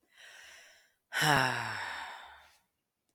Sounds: Sigh